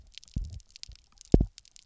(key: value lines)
label: biophony, double pulse
recorder: SoundTrap 300